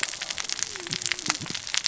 {"label": "biophony, cascading saw", "recorder": "SoundTrap 600 or HydroMoth"}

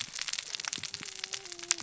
{"label": "biophony, cascading saw", "recorder": "SoundTrap 600 or HydroMoth"}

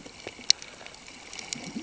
{"label": "ambient", "recorder": "HydroMoth"}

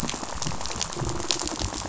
{"label": "biophony, rattle", "recorder": "SoundTrap 500"}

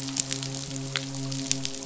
{"label": "biophony, midshipman", "recorder": "SoundTrap 500"}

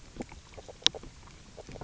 {"label": "biophony, grazing", "recorder": "SoundTrap 300"}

